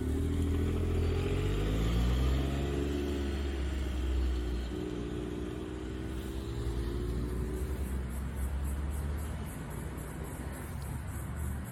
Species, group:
Yoyetta celis, Cicadidae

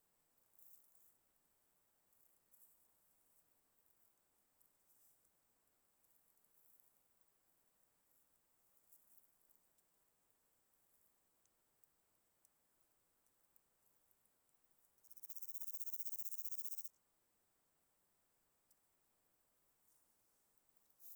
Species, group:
Omocestus antigai, Orthoptera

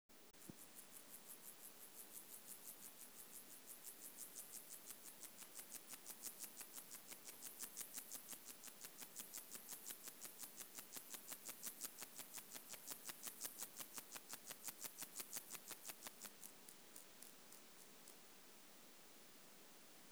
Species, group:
Gomphocerus sibiricus, Orthoptera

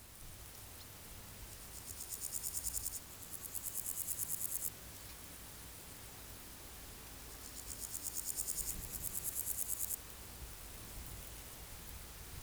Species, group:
Pseudochorthippus parallelus, Orthoptera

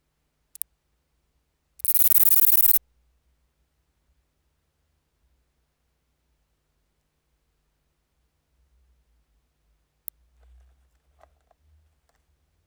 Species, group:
Platycleis escalerai, Orthoptera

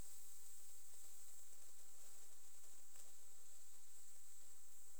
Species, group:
Platycleis albopunctata, Orthoptera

